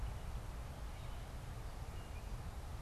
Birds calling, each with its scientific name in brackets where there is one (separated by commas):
Gray Catbird (Dumetella carolinensis)